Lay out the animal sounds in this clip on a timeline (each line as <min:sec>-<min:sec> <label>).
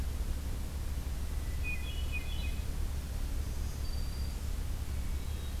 0:01.0-0:02.7 Hermit Thrush (Catharus guttatus)
0:03.2-0:04.7 Black-throated Green Warbler (Setophaga virens)
0:04.5-0:05.6 Hermit Thrush (Catharus guttatus)